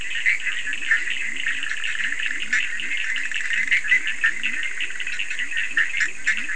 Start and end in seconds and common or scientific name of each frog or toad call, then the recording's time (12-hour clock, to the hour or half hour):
0.0	6.5	Bischoff's tree frog
0.0	6.5	Cochran's lime tree frog
0.4	6.5	Leptodactylus latrans
1:30am